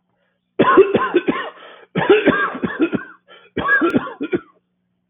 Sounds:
Cough